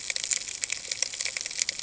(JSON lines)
{"label": "ambient", "recorder": "HydroMoth"}